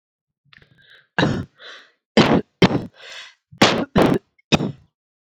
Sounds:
Cough